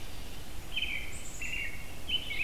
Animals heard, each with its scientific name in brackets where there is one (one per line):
American Robin (Turdus migratorius)
Black-capped Chickadee (Poecile atricapillus)